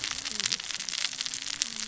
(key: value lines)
label: biophony, cascading saw
recorder: SoundTrap 600 or HydroMoth